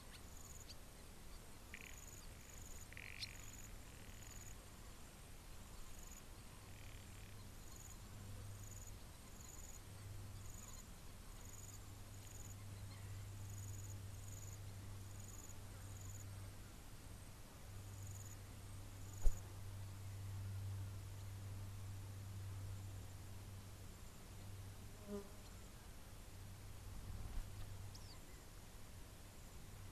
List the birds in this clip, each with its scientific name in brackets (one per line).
Garganey (Spatula querquedula)